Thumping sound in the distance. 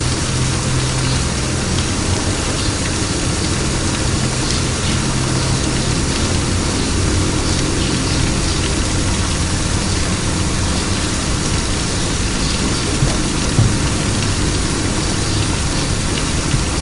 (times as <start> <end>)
13.0 13.8